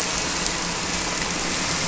{"label": "anthrophony, boat engine", "recorder": "SoundTrap 300"}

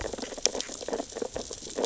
{"label": "biophony, sea urchins (Echinidae)", "recorder": "SoundTrap 600 or HydroMoth"}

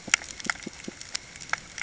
{"label": "ambient", "recorder": "HydroMoth"}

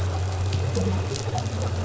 {"label": "anthrophony, boat engine", "recorder": "SoundTrap 500"}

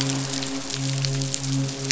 {"label": "biophony, midshipman", "recorder": "SoundTrap 500"}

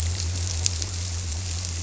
{"label": "biophony", "recorder": "SoundTrap 300"}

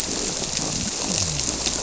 {"label": "biophony", "recorder": "SoundTrap 300"}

